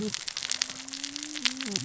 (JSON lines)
{"label": "biophony, cascading saw", "recorder": "SoundTrap 600 or HydroMoth"}